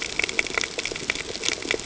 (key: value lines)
label: ambient
recorder: HydroMoth